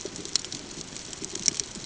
{"label": "ambient", "recorder": "HydroMoth"}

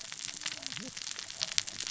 {"label": "biophony, cascading saw", "recorder": "SoundTrap 600 or HydroMoth"}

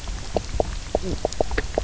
{"label": "biophony, knock croak", "recorder": "SoundTrap 300"}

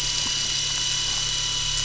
{"label": "anthrophony, boat engine", "recorder": "SoundTrap 500"}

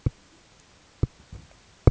{"label": "ambient", "recorder": "HydroMoth"}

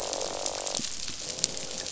{"label": "biophony, croak", "recorder": "SoundTrap 500"}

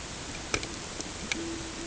{"label": "ambient", "recorder": "HydroMoth"}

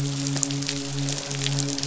{"label": "biophony, midshipman", "recorder": "SoundTrap 500"}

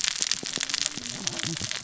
{"label": "biophony, cascading saw", "recorder": "SoundTrap 600 or HydroMoth"}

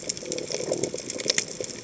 {"label": "biophony", "recorder": "HydroMoth"}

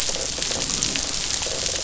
{"label": "biophony", "recorder": "SoundTrap 500"}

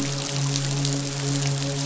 {"label": "biophony, midshipman", "recorder": "SoundTrap 500"}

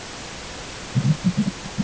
{"label": "ambient", "recorder": "HydroMoth"}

